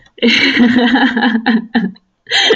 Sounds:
Laughter